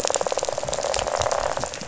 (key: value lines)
label: biophony, rattle
recorder: SoundTrap 500